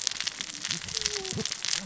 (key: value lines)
label: biophony, cascading saw
recorder: SoundTrap 600 or HydroMoth